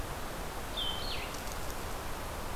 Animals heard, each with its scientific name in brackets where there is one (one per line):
Blue-headed Vireo (Vireo solitarius)